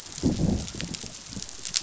{"label": "biophony, growl", "recorder": "SoundTrap 500"}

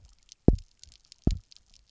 {"label": "biophony, double pulse", "recorder": "SoundTrap 300"}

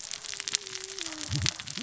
{"label": "biophony, cascading saw", "recorder": "SoundTrap 600 or HydroMoth"}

